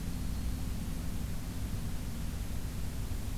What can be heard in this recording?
Black-throated Green Warbler